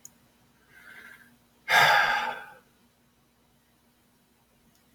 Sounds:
Sigh